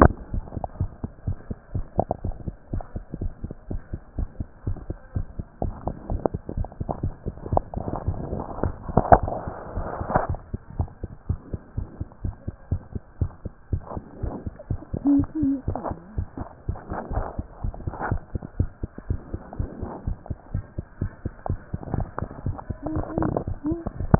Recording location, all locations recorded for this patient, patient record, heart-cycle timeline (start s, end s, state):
tricuspid valve (TV)
aortic valve (AV)+pulmonary valve (PV)+tricuspid valve (TV)+mitral valve (MV)
#Age: Child
#Sex: Male
#Height: nan
#Weight: nan
#Pregnancy status: False
#Murmur: Absent
#Murmur locations: nan
#Most audible location: nan
#Systolic murmur timing: nan
#Systolic murmur shape: nan
#Systolic murmur grading: nan
#Systolic murmur pitch: nan
#Systolic murmur quality: nan
#Diastolic murmur timing: nan
#Diastolic murmur shape: nan
#Diastolic murmur grading: nan
#Diastolic murmur pitch: nan
#Diastolic murmur quality: nan
#Outcome: Abnormal
#Campaign: 2015 screening campaign
0.00	0.32	unannotated
0.32	0.46	S1
0.46	0.54	systole
0.54	0.64	S2
0.64	0.78	diastole
0.78	0.92	S1
0.92	1.02	systole
1.02	1.12	S2
1.12	1.26	diastole
1.26	1.38	S1
1.38	1.48	systole
1.48	1.58	S2
1.58	1.74	diastole
1.74	1.86	S1
1.86	1.96	systole
1.96	2.08	S2
2.08	2.22	diastole
2.22	2.36	S1
2.36	2.44	systole
2.44	2.56	S2
2.56	2.72	diastole
2.72	2.84	S1
2.84	2.94	systole
2.94	3.04	S2
3.04	3.18	diastole
3.18	3.32	S1
3.32	3.42	systole
3.42	3.52	S2
3.52	3.68	diastole
3.68	3.82	S1
3.82	3.92	systole
3.92	4.00	S2
4.00	4.16	diastole
4.16	4.30	S1
4.30	4.38	systole
4.38	4.48	S2
4.48	4.66	diastole
4.66	4.78	S1
4.78	4.88	systole
4.88	4.98	S2
4.98	5.14	diastole
5.14	5.26	S1
5.26	5.36	systole
5.36	5.46	S2
5.46	5.62	diastole
5.62	5.76	S1
5.76	5.84	systole
5.84	5.94	S2
5.94	6.08	diastole
6.08	6.22	S1
6.22	6.32	systole
6.32	6.42	S2
6.42	6.54	diastole
6.54	6.68	S1
6.68	6.78	systole
6.78	6.88	S2
6.88	7.02	diastole
7.02	7.14	S1
7.14	7.24	systole
7.24	7.36	S2
7.36	7.50	diastole
7.50	7.64	S1
7.64	7.74	systole
7.74	7.88	S2
7.88	8.06	diastole
8.06	8.20	S1
8.20	8.31	systole
8.31	8.41	S2
8.41	8.60	diastole
8.60	8.76	S1
8.76	8.88	systole
8.88	8.96	S2
8.96	9.19	diastole
9.19	9.32	S1
9.32	9.44	systole
9.44	9.54	S2
9.54	9.70	diastole
9.70	9.86	S1
9.86	9.98	systole
9.98	10.08	S2
10.08	10.28	diastole
10.28	10.40	S1
10.40	10.52	systole
10.52	10.62	S2
10.62	10.76	diastole
10.76	10.88	S1
10.88	11.02	systole
11.02	11.12	S2
11.12	11.28	diastole
11.28	11.38	S1
11.38	11.52	systole
11.52	11.62	S2
11.62	11.76	diastole
11.76	11.88	S1
11.88	11.98	systole
11.98	12.08	S2
12.08	12.22	diastole
12.22	12.36	S1
12.36	12.46	systole
12.46	12.56	S2
12.56	12.70	diastole
12.70	12.84	S1
12.84	12.94	systole
12.94	13.04	S2
13.04	13.20	diastole
13.20	13.32	S1
13.32	13.44	systole
13.44	13.51	S2
13.51	13.70	diastole
13.70	13.84	S1
13.84	13.95	systole
13.95	14.03	S2
14.03	14.20	diastole
14.20	14.34	S1
14.34	14.44	systole
14.44	14.54	S2
14.54	14.68	diastole
14.68	14.82	S1
14.82	14.91	systole
14.91	14.99	S2
14.99	15.18	diastole
15.18	15.29	S1
15.29	15.42	systole
15.42	15.51	S2
15.51	15.68	diastole
15.68	15.80	S1
15.80	15.88	systole
15.88	15.98	S2
15.98	16.12	diastole
16.12	16.24	S1
16.24	16.38	systole
16.38	16.48	S2
16.48	16.66	diastole
16.66	16.80	S1
16.80	16.90	systole
16.90	16.98	S2
16.98	17.12	diastole
17.12	17.24	S1
17.24	17.36	systole
17.36	17.46	S2
17.46	17.62	diastole
17.62	17.76	S1
17.76	17.84	systole
17.84	17.96	S2
17.96	18.10	diastole
18.10	18.24	S1
18.24	18.34	systole
18.34	18.44	S2
18.44	18.56	diastole
18.56	18.72	S1
18.72	18.80	systole
18.80	18.90	S2
18.90	19.08	diastole
19.08	19.22	S1
19.22	19.32	systole
19.32	19.42	S2
19.42	19.58	diastole
19.58	19.72	S1
19.72	19.81	systole
19.81	19.94	S2
19.94	20.06	diastole
20.06	20.18	S1
20.18	20.28	systole
20.28	20.38	S2
20.38	20.52	diastole
20.52	20.66	S1
20.66	20.76	systole
20.76	20.86	S2
20.86	21.00	diastole
21.00	21.12	S1
21.12	21.24	systole
21.24	21.34	S2
21.34	21.48	diastole
21.48	21.60	S1
21.60	21.72	systole
21.72	21.80	S2
21.80	21.92	diastole
21.92	22.08	S1
22.08	22.22	systole
22.22	22.30	S2
22.30	22.44	diastole
22.44	22.56	S1
22.56	22.68	systole
22.68	22.78	S2
22.78	22.92	diastole
22.92	24.19	unannotated